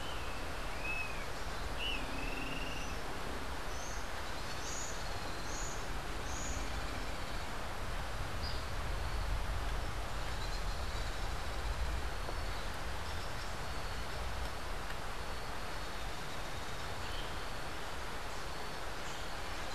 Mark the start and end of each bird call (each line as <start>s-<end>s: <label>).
0.0s-1.4s: Great Kiskadee (Pitangus sulphuratus)
1.8s-2.9s: Great Kiskadee (Pitangus sulphuratus)